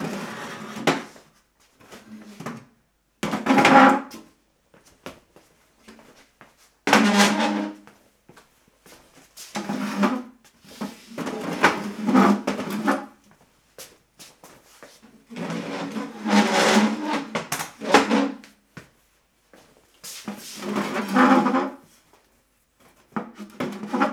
What are the objects being moved upon?
chair